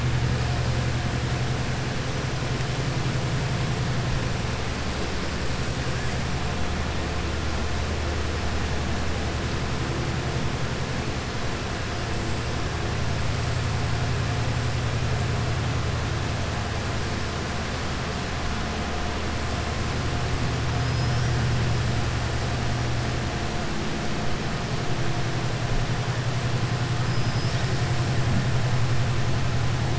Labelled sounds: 20.8	21.3	killer whale, southern resident, 4.8 to 5.8 kHz
27.0	27.7	killer whale, southern resident, 3.1 to 5.7 kHz

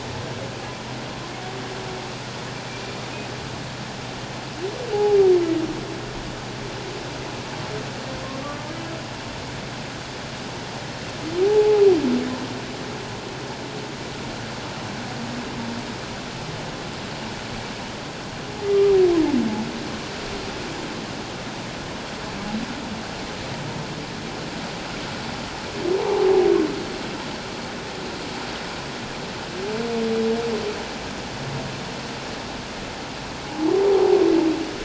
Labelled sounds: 4.9	5.2	humpback whale, 0.78 to 0.91 kHz
11.4	11.8	humpback whale, 0.78 to 0.91 kHz
18.7	19.0	humpback whale, 1.2 to 1.3 kHz
26.0	26.3	humpback whale, 0.78 to 1.0 kHz
33.5	33.7	humpback whale, 0.78 to 0.97 kHz

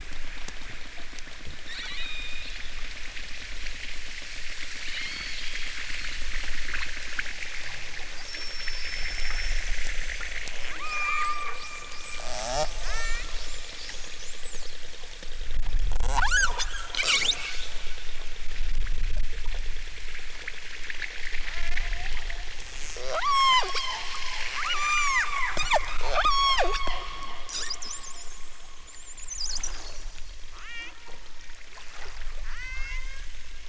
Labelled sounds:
1.6	2.5	killer whale, southern Alaska resident, 1.2 to 8.0 kHz
4.9	5.5	killer whale, southern Alaska resident, 1.7 to 4.7 kHz
10.7	11.6	killer whale, southern Alaska resident, 0.60 to 8.0 kHz
12.2	13.3	killer whale, southern Alaska resident, 0.28 to 8.0 kHz
16.0	16.5	killer whale, southern Alaska resident, 0.32 to 8.0 kHz
21.4	22.2	killer whale, southern Alaska resident, 0.46 to 3.2 kHz
23.0	24.1	killer whale, southern Alaska resident, 0.23 to 8.0 kHz
24.6	27.0	killer whale, southern Alaska resident, 0.23 to 8.0 kHz
30.5	30.9	killer whale, southern Alaska resident, 0.60 to 7.1 kHz
32.5	33.3	killer whale, southern Alaska resident, 0.60 to 7.6 kHz

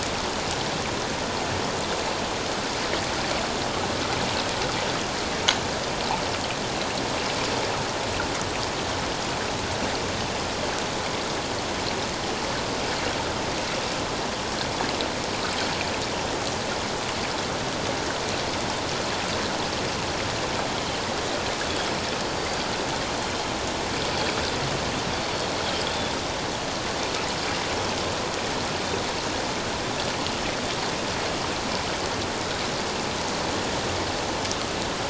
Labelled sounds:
20.7	21.0	Pacific white-sided dolphin, 3.0 to 3.2 kHz
22.4	22.7	Pacific white-sided dolphin, 4.5 to 4.7 kHz
25.9	26.1	Pacific white-sided dolphin, 3.2 to 3.6 kHz

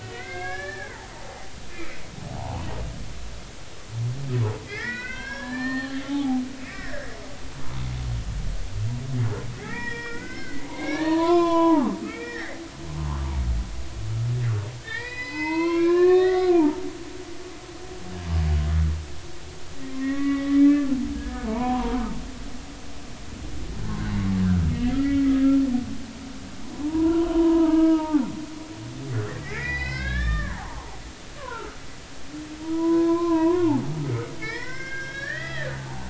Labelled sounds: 0.0	2.0	humpback whale, 1.3 to 3.7 kHz
2.3	2.7	humpback whale, 0.80 to 1.2 kHz
4.7	6.4	humpback whale, 0.80 to 5.6 kHz
6.7	7.1	humpback whale, 1.6 to 2.1 kHz
9.6	12.6	humpback whale, 0.80 to 5.3 kHz
12.9	13.3	humpback whale, 0.83 to 1.2 kHz
14.8	16.8	humpback whale, 0.83 to 5.3 kHz
17.2	17.5	humpback whale, 1.4 to 1.5 kHz
19.8	20.9	humpback whale, 1.0 to 2.4 kHz
21.1	22.0	humpback whale, 0.83 to 1.8 kHz
23.8	25.2	humpback whale, 1.4 to 3.0 kHz
26.7	28.2	humpback whale, 0.80 to 1.7 kHz
29.4	31.8	humpback whale, 0.80 to 5.5 kHz
32.6	33.7	humpback whale, 0.90 to 3.8 kHz
34.3	36.0	humpback whale, 0.80 to 6.0 kHz

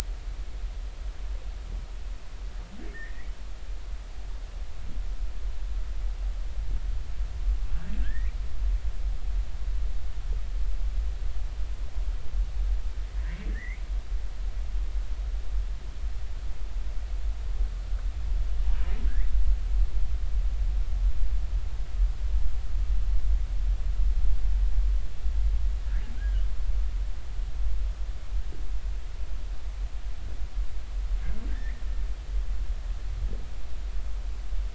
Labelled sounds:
2.9	3.3	humpback whale, 1.7 to 2.1 kHz
8.0	8.3	humpback whale, 1.5 to 2.1 kHz
13.2	13.8	humpback whale, 1.5 to 2.4 kHz
26.2	26.4	humpback whale, 1.4 to 1.7 kHz
31.5	31.8	humpback whale, 1.5 to 2.2 kHz

